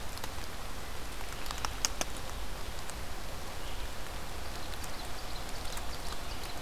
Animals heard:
Ovenbird (Seiurus aurocapilla)

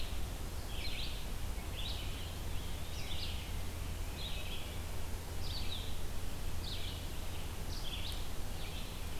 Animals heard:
Eastern Wood-Pewee (Contopus virens)
Red-eyed Vireo (Vireo olivaceus)

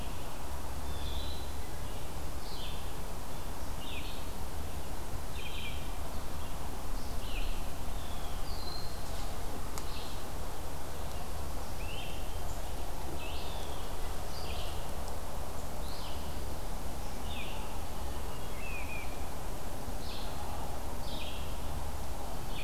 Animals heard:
unidentified call
Great Crested Flycatcher (Myiarchus crinitus)
Blue Jay (Cyanocitta cristata)
Red-eyed Vireo (Vireo olivaceus)
Hermit Thrush (Catharus guttatus)
Broad-winged Hawk (Buteo platypterus)

